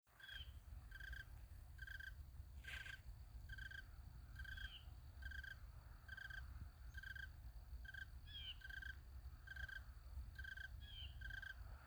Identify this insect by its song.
Oecanthus fultoni, an orthopteran